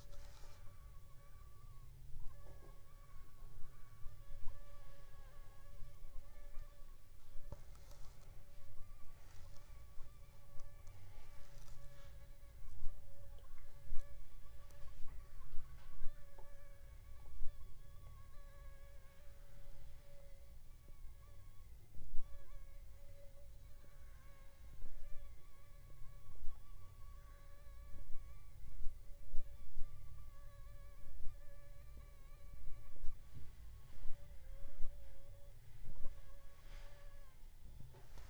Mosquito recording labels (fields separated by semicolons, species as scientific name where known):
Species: Anopheles funestus s.s.; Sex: female; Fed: unfed; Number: one; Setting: cup